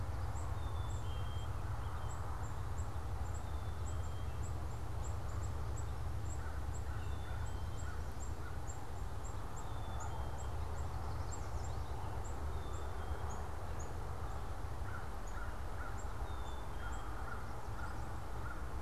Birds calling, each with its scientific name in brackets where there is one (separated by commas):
American Crow (Corvus brachyrhynchos), Yellow Warbler (Setophaga petechia), Black-capped Chickadee (Poecile atricapillus)